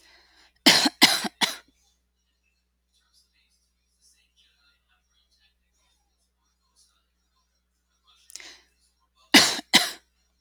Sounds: Cough